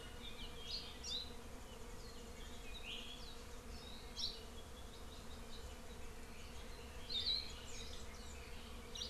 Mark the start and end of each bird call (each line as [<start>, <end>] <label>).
[0.65, 1.45] Hawaii Creeper (Loxops mana)
[4.15, 4.55] Hawaii Creeper (Loxops mana)